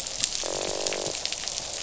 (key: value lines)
label: biophony, croak
recorder: SoundTrap 500